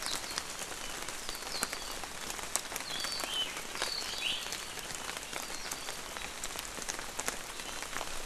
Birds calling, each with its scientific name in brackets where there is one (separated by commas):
Iiwi (Drepanis coccinea), Apapane (Himatione sanguinea)